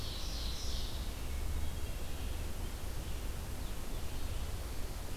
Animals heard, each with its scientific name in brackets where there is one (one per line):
Hermit Thrush (Catharus guttatus)
Red-eyed Vireo (Vireo olivaceus)
Blue-headed Vireo (Vireo solitarius)
Ovenbird (Seiurus aurocapilla)